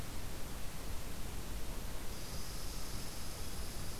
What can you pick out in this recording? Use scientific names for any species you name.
Tamiasciurus hudsonicus